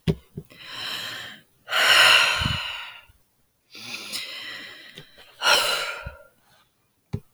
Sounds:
Sigh